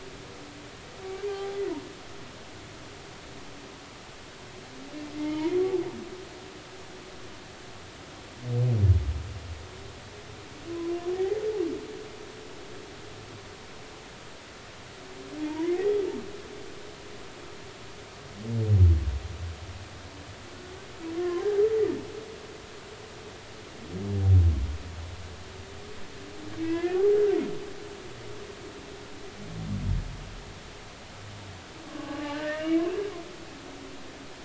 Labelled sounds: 1.3	1.6	humpback whale, 0.80 to 0.86 kHz
5.2	5.6	humpback whale, 0.86 to 2.3 kHz
11.1	11.4	humpback whale, 0.80 to 2.1 kHz
15.5	16.0	humpback whale, 0.86 to 2.0 kHz
26.6	27.0	humpback whale, 1.6 to 2.8 kHz
31.8	32.8	humpback whale, 0.80 to 2.3 kHz

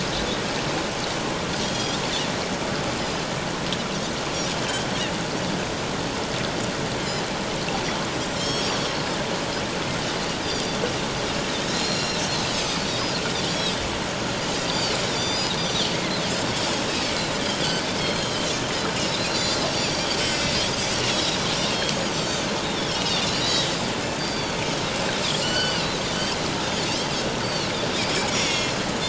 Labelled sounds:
1.6	2.0	Pacific white-sided dolphin, 3.2 to 3.8 kHz
8.4	8.9	Pacific white-sided dolphin, 3.1 to 6.8 kHz
10.4	10.8	Pacific white-sided dolphin, 4.6 to 4.9 kHz
11.7	12.2	Pacific white-sided dolphin, 2.6 to 7.2 kHz
12.5	12.8	Pacific white-sided dolphin, 4.8 to 5.4 kHz
13.5	13.8	Pacific white-sided dolphin, 3.1 to 5.7 kHz
14.7	16.5	Pacific white-sided dolphin, 3.4 to 7.3 kHz
17.6	21.0	Pacific white-sided dolphin, 1.9 to 7.7 kHz
21.6	24.6	Pacific white-sided dolphin, 1.8 to 7.0 kHz
25.4	26.0	Pacific white-sided dolphin, 2.7 to 7.8 kHz
26.6	26.9	Pacific white-sided dolphin, 3.4 to 3.7 kHz
27.4	27.7	Pacific white-sided dolphin, 3.8 to 4.7 kHz
28.3	28.7	Pacific white-sided dolphin, 2.1 to 5.8 kHz

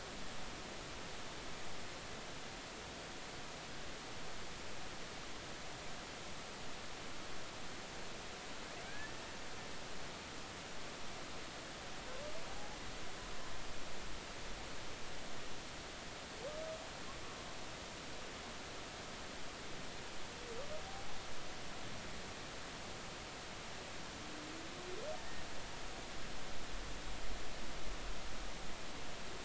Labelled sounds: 8.9	9.2	humpback whale, 1.5 to 1.8 kHz

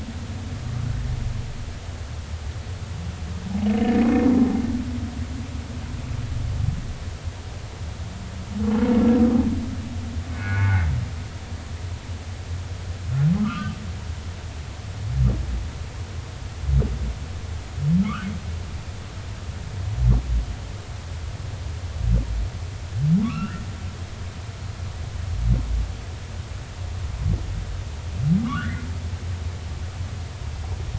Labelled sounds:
10.3	10.9	humpback whale, 0.80 to 2.5 kHz
13.4	13.8	humpback whale, 0.99 to 1.6 kHz
18.0	18.3	humpback whale, 1.0 to 1.6 kHz
23.2	23.6	humpback whale, 1.1 to 2.9 kHz
28.4	28.9	humpback whale, 0.96 to 2.1 kHz

